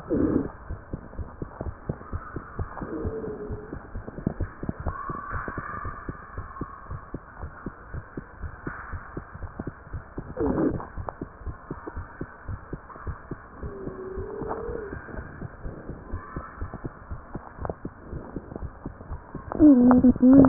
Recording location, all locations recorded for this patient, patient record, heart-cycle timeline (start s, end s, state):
mitral valve (MV)
aortic valve (AV)+pulmonary valve (PV)+tricuspid valve (TV)+mitral valve (MV)
#Age: Child
#Sex: Male
#Height: 142.0 cm
#Weight: 37.1 kg
#Pregnancy status: False
#Murmur: Absent
#Murmur locations: nan
#Most audible location: nan
#Systolic murmur timing: nan
#Systolic murmur shape: nan
#Systolic murmur grading: nan
#Systolic murmur pitch: nan
#Systolic murmur quality: nan
#Diastolic murmur timing: nan
#Diastolic murmur shape: nan
#Diastolic murmur grading: nan
#Diastolic murmur pitch: nan
#Diastolic murmur quality: nan
#Outcome: Normal
#Campaign: 2015 screening campaign
0.00	6.25	unannotated
6.25	6.36	diastole
6.36	6.48	S1
6.48	6.58	systole
6.58	6.68	S2
6.68	6.88	diastole
6.88	7.02	S1
7.02	7.10	systole
7.10	7.20	S2
7.20	7.40	diastole
7.40	7.54	S1
7.54	7.64	systole
7.64	7.74	S2
7.74	7.92	diastole
7.92	8.04	S1
8.04	8.14	systole
8.14	8.24	S2
8.24	8.39	diastole
8.39	8.54	S1
8.54	8.64	systole
8.64	8.74	S2
8.74	8.90	diastole
8.90	9.04	S1
9.04	9.12	systole
9.12	9.22	S2
9.22	9.41	diastole
9.41	9.50	S1
9.50	9.60	systole
9.60	9.74	S2
9.74	9.90	diastole
9.90	10.02	S1
10.02	10.14	systole
10.14	10.24	S2
10.24	10.40	diastole
10.40	10.58	S1
10.58	10.66	systole
10.66	10.80	S2
10.80	10.96	diastole
10.96	11.08	S1
11.08	11.19	systole
11.19	11.27	S2
11.27	11.40	diastole
11.40	11.54	S1
11.54	11.66	systole
11.66	11.78	S2
11.78	11.94	diastole
11.94	12.06	S1
12.06	12.19	systole
12.19	12.30	S2
12.30	12.45	diastole
12.45	12.59	S1
12.59	12.70	systole
12.70	12.82	S2
12.82	13.04	diastole
13.04	13.17	S1
13.17	13.28	systole
13.28	13.36	S2
13.36	13.60	diastole
13.60	13.74	S1
13.74	13.85	systole
13.85	13.94	S2
13.94	14.16	diastole
14.16	14.18	S1
14.18	20.48	unannotated